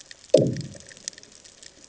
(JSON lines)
{"label": "anthrophony, bomb", "recorder": "HydroMoth"}